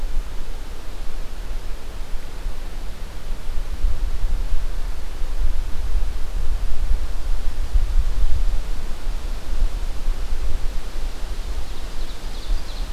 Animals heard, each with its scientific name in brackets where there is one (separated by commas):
Ovenbird (Seiurus aurocapilla)